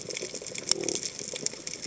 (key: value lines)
label: biophony
recorder: HydroMoth